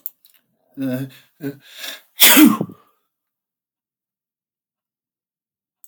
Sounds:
Sneeze